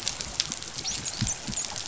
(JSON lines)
{"label": "biophony, dolphin", "recorder": "SoundTrap 500"}